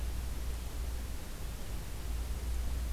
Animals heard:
forest ambience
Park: Acadia National Park